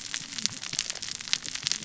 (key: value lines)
label: biophony, cascading saw
recorder: SoundTrap 600 or HydroMoth